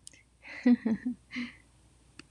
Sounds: Laughter